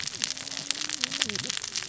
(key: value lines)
label: biophony, cascading saw
recorder: SoundTrap 600 or HydroMoth